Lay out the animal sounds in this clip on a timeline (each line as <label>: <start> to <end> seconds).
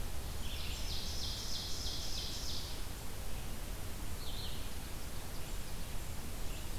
Red-eyed Vireo (Vireo olivaceus): 0.0 to 6.8 seconds
Ovenbird (Seiurus aurocapilla): 0.2 to 3.0 seconds
Blackburnian Warbler (Setophaga fusca): 6.2 to 6.8 seconds